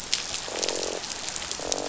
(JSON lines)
{"label": "biophony, croak", "recorder": "SoundTrap 500"}